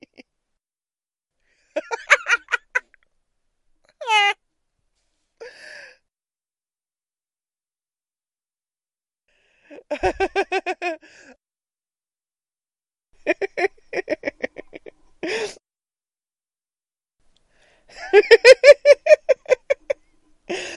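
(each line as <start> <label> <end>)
1.6 A man laughs. 2.9
3.9 A man laughs. 4.5
5.3 A person breathes in deeply after laughing. 6.1
9.9 A man laughs. 11.0
13.2 A man laughs. 15.6
18.0 A man laughs. 20.0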